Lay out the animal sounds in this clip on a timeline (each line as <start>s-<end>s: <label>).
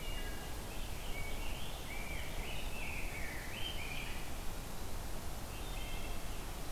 0.0s-0.7s: Wood Thrush (Hylocichla mustelina)
0.5s-4.7s: Rose-breasted Grosbeak (Pheucticus ludovicianus)
5.3s-6.7s: Wood Thrush (Hylocichla mustelina)